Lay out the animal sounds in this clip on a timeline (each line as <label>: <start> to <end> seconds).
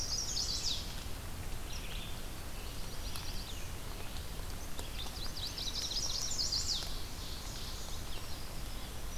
Chestnut-sided Warbler (Setophaga pensylvanica): 0.0 to 1.0 seconds
Red-eyed Vireo (Vireo olivaceus): 0.0 to 9.2 seconds
Yellow-rumped Warbler (Setophaga coronata): 2.6 to 3.7 seconds
Black-throated Green Warbler (Setophaga virens): 2.7 to 3.8 seconds
Yellow-rumped Warbler (Setophaga coronata): 4.9 to 6.2 seconds
Chestnut-sided Warbler (Setophaga pensylvanica): 5.5 to 7.0 seconds
Ovenbird (Seiurus aurocapilla): 6.6 to 8.0 seconds